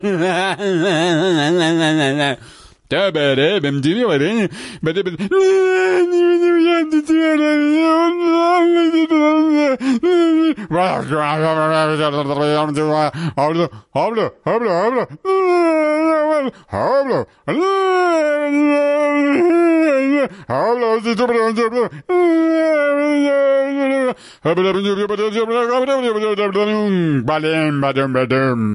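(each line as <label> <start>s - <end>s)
A man makes irregular funny noises. 0.0s - 28.7s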